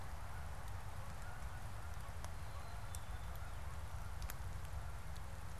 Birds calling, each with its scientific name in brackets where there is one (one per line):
Canada Goose (Branta canadensis)